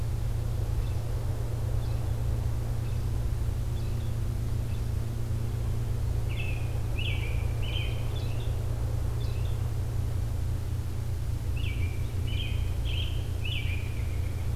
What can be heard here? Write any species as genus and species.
Turdus migratorius